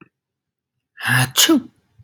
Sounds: Sneeze